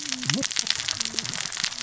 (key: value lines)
label: biophony, cascading saw
recorder: SoundTrap 600 or HydroMoth